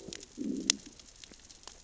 {"label": "biophony, growl", "recorder": "SoundTrap 600 or HydroMoth"}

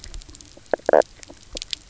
{"label": "biophony, knock croak", "recorder": "SoundTrap 300"}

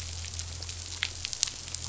{"label": "anthrophony, boat engine", "recorder": "SoundTrap 500"}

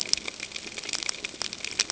{"label": "ambient", "recorder": "HydroMoth"}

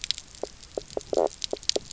{"label": "biophony, knock croak", "recorder": "SoundTrap 300"}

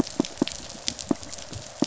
{"label": "biophony, pulse", "recorder": "SoundTrap 500"}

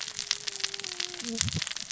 {"label": "biophony, cascading saw", "recorder": "SoundTrap 600 or HydroMoth"}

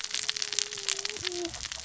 {"label": "biophony, cascading saw", "recorder": "SoundTrap 600 or HydroMoth"}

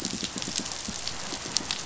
{"label": "biophony, pulse", "recorder": "SoundTrap 500"}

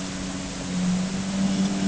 {"label": "anthrophony, boat engine", "recorder": "HydroMoth"}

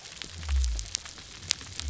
{"label": "biophony", "recorder": "SoundTrap 300"}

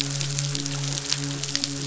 {"label": "biophony, midshipman", "recorder": "SoundTrap 500"}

